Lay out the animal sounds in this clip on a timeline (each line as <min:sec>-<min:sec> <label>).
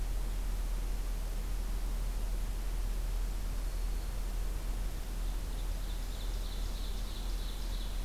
0:03.5-0:04.2 Black-throated Green Warbler (Setophaga virens)
0:04.9-0:08.0 Ovenbird (Seiurus aurocapilla)